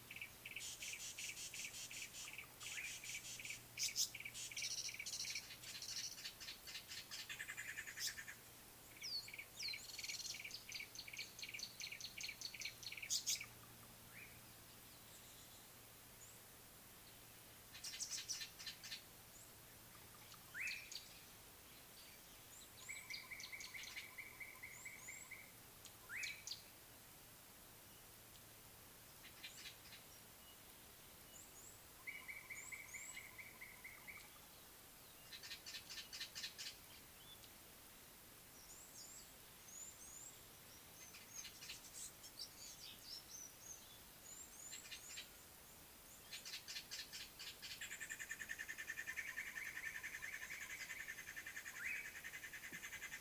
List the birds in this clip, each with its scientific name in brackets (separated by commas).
Brown Babbler (Turdoides plebejus), Red-cheeked Cordonbleu (Uraeginthus bengalus), Tawny-flanked Prinia (Prinia subflava), Rattling Cisticola (Cisticola chiniana), Yellow-breasted Apalis (Apalis flavida), Slate-colored Boubou (Laniarius funebris)